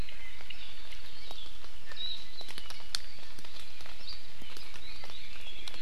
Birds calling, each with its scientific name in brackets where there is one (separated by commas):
Warbling White-eye (Zosterops japonicus)